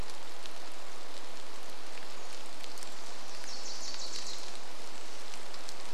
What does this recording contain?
rain, Wilson's Warbler song